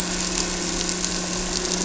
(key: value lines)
label: anthrophony, boat engine
recorder: SoundTrap 300